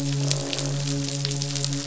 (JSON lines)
{"label": "biophony, midshipman", "recorder": "SoundTrap 500"}
{"label": "biophony, croak", "recorder": "SoundTrap 500"}